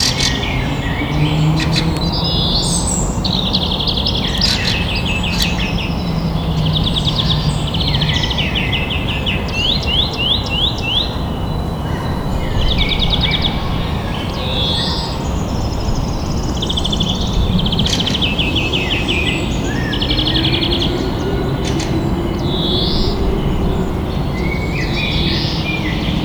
Are there humans?
no